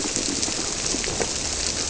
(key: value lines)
label: biophony
recorder: SoundTrap 300